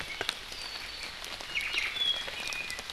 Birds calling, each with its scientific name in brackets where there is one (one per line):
Apapane (Himatione sanguinea)